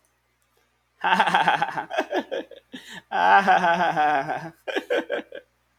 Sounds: Laughter